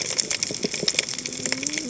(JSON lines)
{"label": "biophony, cascading saw", "recorder": "HydroMoth"}